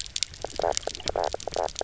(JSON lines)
{"label": "biophony, knock croak", "recorder": "SoundTrap 300"}